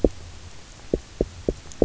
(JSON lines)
{"label": "biophony, knock", "recorder": "SoundTrap 300"}